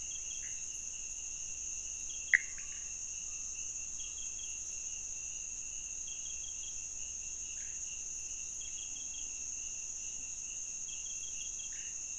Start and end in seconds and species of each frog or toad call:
2.1	2.7	Pithecopus azureus
7.5	8.2	pointedbelly frog
11.7	12.1	pointedbelly frog
Cerrado, Brazil, 1:15am

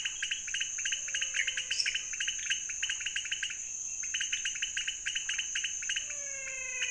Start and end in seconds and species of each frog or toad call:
0.0	6.9	pointedbelly frog
0.5	2.4	menwig frog
1.7	2.2	lesser tree frog
5.7	6.9	menwig frog
Cerrado, Brazil, 1:30am

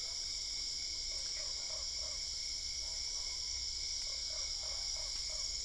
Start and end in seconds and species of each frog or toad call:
1.0	2.2	Usina tree frog
4.0	5.6	Usina tree frog
Cerrado, Brazil, 10:45pm

